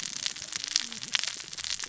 {"label": "biophony, cascading saw", "recorder": "SoundTrap 600 or HydroMoth"}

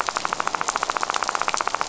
{"label": "biophony, rattle", "recorder": "SoundTrap 500"}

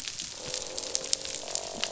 {"label": "biophony, croak", "recorder": "SoundTrap 500"}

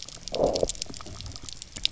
{"label": "biophony, low growl", "recorder": "SoundTrap 300"}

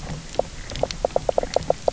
{"label": "biophony, knock croak", "recorder": "SoundTrap 300"}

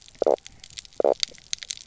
{"label": "biophony, knock croak", "recorder": "SoundTrap 300"}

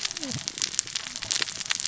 {"label": "biophony, cascading saw", "recorder": "SoundTrap 600 or HydroMoth"}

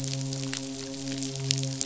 {"label": "biophony, midshipman", "recorder": "SoundTrap 500"}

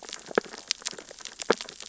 {"label": "biophony, sea urchins (Echinidae)", "recorder": "SoundTrap 600 or HydroMoth"}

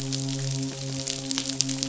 {"label": "biophony, midshipman", "recorder": "SoundTrap 500"}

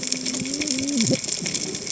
{"label": "biophony, cascading saw", "recorder": "HydroMoth"}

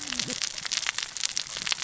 {"label": "biophony, cascading saw", "recorder": "SoundTrap 600 or HydroMoth"}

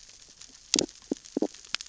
{"label": "biophony, stridulation", "recorder": "SoundTrap 600 or HydroMoth"}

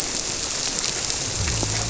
{"label": "biophony", "recorder": "SoundTrap 300"}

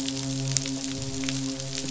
{"label": "biophony, midshipman", "recorder": "SoundTrap 500"}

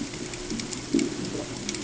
{"label": "ambient", "recorder": "HydroMoth"}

